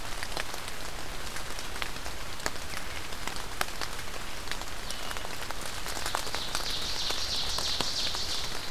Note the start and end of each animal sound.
[0.00, 8.71] Blue-headed Vireo (Vireo solitarius)
[6.18, 8.71] Ovenbird (Seiurus aurocapilla)

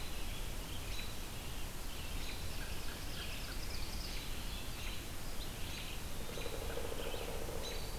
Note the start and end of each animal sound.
[0.00, 7.99] American Robin (Turdus migratorius)
[0.00, 7.99] Red-eyed Vireo (Vireo olivaceus)
[1.70, 5.07] Scarlet Tanager (Piranga olivacea)
[2.11, 4.41] Ovenbird (Seiurus aurocapilla)
[6.20, 7.92] Pileated Woodpecker (Dryocopus pileatus)

